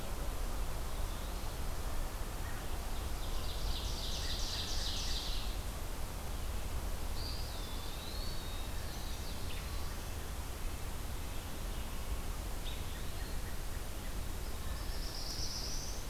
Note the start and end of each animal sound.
[3.16, 5.67] Ovenbird (Seiurus aurocapilla)
[7.17, 8.31] Eastern Wood-Pewee (Contopus virens)
[8.11, 10.11] Black-throated Blue Warbler (Setophaga caerulescens)
[8.49, 12.04] Red-breasted Nuthatch (Sitta canadensis)
[12.53, 13.34] Eastern Wood-Pewee (Contopus virens)
[14.67, 16.09] Black-throated Blue Warbler (Setophaga caerulescens)

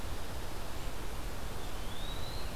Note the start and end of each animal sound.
[1.49, 2.56] Eastern Wood-Pewee (Contopus virens)

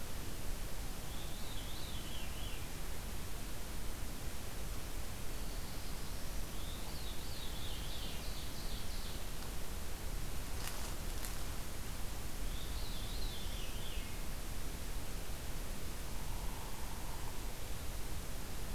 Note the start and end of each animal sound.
[0.97, 2.75] Veery (Catharus fuscescens)
[5.13, 6.74] Black-throated Blue Warbler (Setophaga caerulescens)
[6.41, 8.39] Veery (Catharus fuscescens)
[7.58, 9.51] Ovenbird (Seiurus aurocapilla)
[12.27, 14.22] Veery (Catharus fuscescens)
[15.92, 17.46] Downy Woodpecker (Dryobates pubescens)

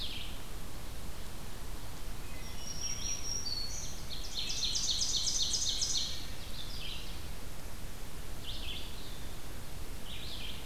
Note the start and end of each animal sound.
[0.00, 10.65] Red-eyed Vireo (Vireo olivaceus)
[1.94, 2.85] Wood Thrush (Hylocichla mustelina)
[2.17, 3.93] Black-throated Green Warbler (Setophaga virens)
[4.05, 6.31] Ovenbird (Seiurus aurocapilla)
[5.64, 6.44] Wood Thrush (Hylocichla mustelina)

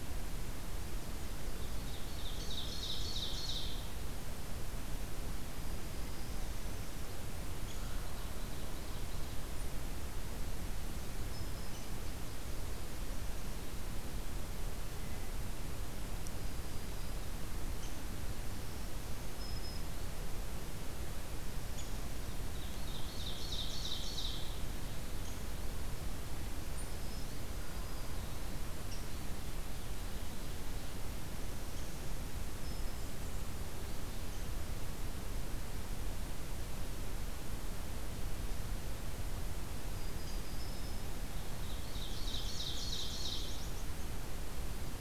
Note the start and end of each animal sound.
[1.82, 3.88] Ovenbird (Seiurus aurocapilla)
[5.51, 6.79] Black-throated Green Warbler (Setophaga virens)
[7.63, 7.81] Downy Woodpecker (Dryobates pubescens)
[7.83, 9.47] Ovenbird (Seiurus aurocapilla)
[11.28, 11.72] Black-throated Green Warbler (Setophaga virens)
[11.56, 13.21] Nashville Warbler (Leiothlypis ruficapilla)
[11.72, 11.85] Downy Woodpecker (Dryobates pubescens)
[16.45, 17.21] Black-throated Green Warbler (Setophaga virens)
[17.77, 17.93] Downy Woodpecker (Dryobates pubescens)
[18.64, 19.88] Black-throated Green Warbler (Setophaga virens)
[21.73, 21.87] Downy Woodpecker (Dryobates pubescens)
[22.55, 24.60] Ovenbird (Seiurus aurocapilla)
[25.24, 25.36] Downy Woodpecker (Dryobates pubescens)
[27.55, 28.52] Black-throated Green Warbler (Setophaga virens)
[28.88, 28.99] Downy Woodpecker (Dryobates pubescens)
[31.68, 31.87] Downy Woodpecker (Dryobates pubescens)
[32.62, 33.11] Black-throated Green Warbler (Setophaga virens)
[34.28, 34.45] Downy Woodpecker (Dryobates pubescens)
[39.95, 41.09] Black-throated Green Warbler (Setophaga virens)
[40.25, 40.37] Downy Woodpecker (Dryobates pubescens)
[41.57, 43.63] Ovenbird (Seiurus aurocapilla)
[42.58, 43.95] Nashville Warbler (Leiothlypis ruficapilla)

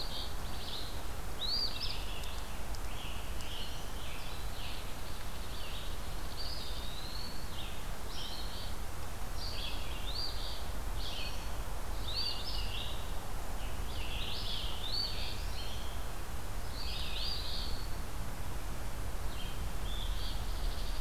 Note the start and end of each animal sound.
[0.00, 0.37] Eastern Phoebe (Sayornis phoebe)
[0.43, 21.00] Red-eyed Vireo (Vireo olivaceus)
[1.28, 2.02] Eastern Phoebe (Sayornis phoebe)
[2.11, 4.96] Scarlet Tanager (Piranga olivacea)
[4.75, 6.92] unknown mammal
[6.32, 7.48] Eastern Wood-Pewee (Contopus virens)
[8.08, 8.79] Eastern Phoebe (Sayornis phoebe)
[10.01, 10.68] Eastern Phoebe (Sayornis phoebe)
[12.04, 12.65] Eastern Phoebe (Sayornis phoebe)
[13.54, 15.88] Scarlet Tanager (Piranga olivacea)
[14.80, 15.38] Eastern Phoebe (Sayornis phoebe)
[16.65, 18.00] Eastern Wood-Pewee (Contopus virens)
[17.05, 17.74] Eastern Phoebe (Sayornis phoebe)
[19.84, 20.41] Eastern Phoebe (Sayornis phoebe)
[20.13, 21.00] unknown mammal

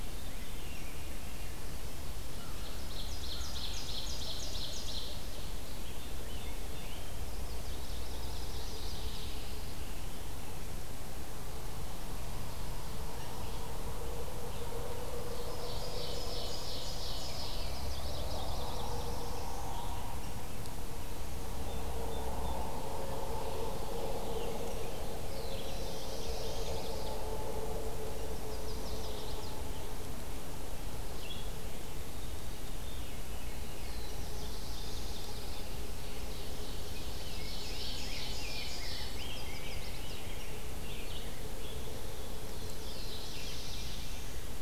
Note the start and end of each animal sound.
[0.00, 1.61] Veery (Catharus fuscescens)
[2.40, 5.47] Ovenbird (Seiurus aurocapilla)
[5.48, 43.43] Red-eyed Vireo (Vireo olivaceus)
[6.02, 7.34] Rose-breasted Grosbeak (Pheucticus ludovicianus)
[7.12, 9.25] Yellow-rumped Warbler (Setophaga coronata)
[7.96, 9.91] Pine Warbler (Setophaga pinus)
[14.97, 17.95] Ovenbird (Seiurus aurocapilla)
[17.36, 19.20] Yellow-rumped Warbler (Setophaga coronata)
[18.16, 19.80] Black-throated Blue Warbler (Setophaga caerulescens)
[24.84, 27.55] Black-throated Blue Warbler (Setophaga caerulescens)
[28.28, 29.56] Chestnut-sided Warbler (Setophaga pensylvanica)
[32.87, 34.01] Veery (Catharus fuscescens)
[33.54, 35.66] Black-throated Blue Warbler (Setophaga caerulescens)
[34.21, 35.76] Pine Warbler (Setophaga pinus)
[35.90, 39.23] Ovenbird (Seiurus aurocapilla)
[36.77, 42.18] Rose-breasted Grosbeak (Pheucticus ludovicianus)
[38.87, 40.33] Chestnut-sided Warbler (Setophaga pensylvanica)
[42.38, 44.54] Black-throated Blue Warbler (Setophaga caerulescens)
[43.40, 44.62] Veery (Catharus fuscescens)

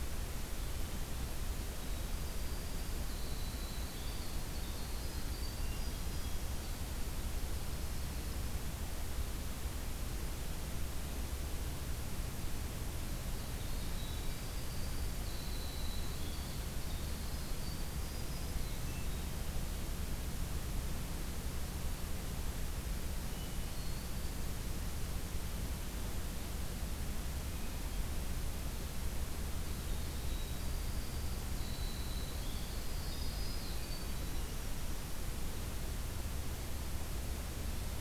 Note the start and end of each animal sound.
[1.83, 6.36] Winter Wren (Troglodytes hiemalis)
[5.49, 6.75] Hermit Thrush (Catharus guttatus)
[5.96, 7.29] Black-throated Green Warbler (Setophaga virens)
[13.26, 18.64] Winter Wren (Troglodytes hiemalis)
[17.97, 19.03] Black-throated Green Warbler (Setophaga virens)
[18.42, 19.50] Hermit Thrush (Catharus guttatus)
[23.16, 24.54] Hermit Thrush (Catharus guttatus)
[29.59, 35.23] Winter Wren (Troglodytes hiemalis)
[32.81, 34.13] Black-throated Green Warbler (Setophaga virens)

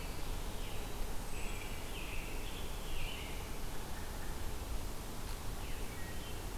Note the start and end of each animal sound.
[0.51, 3.41] American Robin (Turdus migratorius)
[0.96, 1.76] Wood Thrush (Hylocichla mustelina)

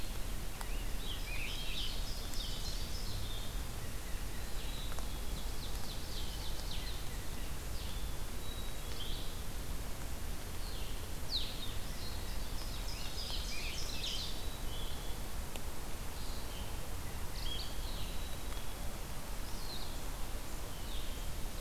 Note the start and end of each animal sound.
[0.00, 21.61] Blue-headed Vireo (Vireo solitarius)
[0.59, 2.03] Scarlet Tanager (Piranga olivacea)
[0.89, 3.27] Ovenbird (Seiurus aurocapilla)
[4.23, 5.54] Black-capped Chickadee (Poecile atricapillus)
[5.18, 6.85] Ovenbird (Seiurus aurocapilla)
[8.30, 9.35] Black-capped Chickadee (Poecile atricapillus)
[11.63, 13.08] Black-capped Chickadee (Poecile atricapillus)
[11.65, 14.22] Ovenbird (Seiurus aurocapilla)
[12.72, 14.44] Scarlet Tanager (Piranga olivacea)
[18.00, 19.00] Black-capped Chickadee (Poecile atricapillus)

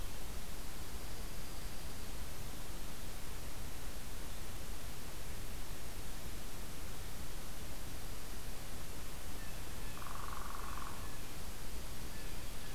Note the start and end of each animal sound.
[0.60, 2.04] Dark-eyed Junco (Junco hyemalis)
[9.28, 11.34] Blue Jay (Cyanocitta cristata)
[9.94, 10.93] Northern Flicker (Colaptes auratus)
[11.29, 12.75] Dark-eyed Junco (Junco hyemalis)

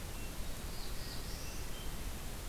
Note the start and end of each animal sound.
[0.00, 1.89] Hermit Thrush (Catharus guttatus)
[0.47, 1.72] Black-throated Blue Warbler (Setophaga caerulescens)

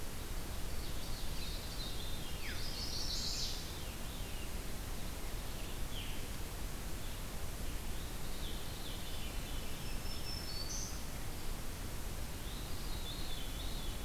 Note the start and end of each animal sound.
[0.59, 1.78] Ovenbird (Seiurus aurocapilla)
[1.17, 2.59] Veery (Catharus fuscescens)
[2.40, 3.62] Chestnut-sided Warbler (Setophaga pensylvanica)
[3.12, 4.62] Veery (Catharus fuscescens)
[5.83, 6.17] Veery (Catharus fuscescens)
[8.26, 9.79] Veery (Catharus fuscescens)
[9.89, 11.01] Black-throated Green Warbler (Setophaga virens)
[12.37, 14.04] Veery (Catharus fuscescens)

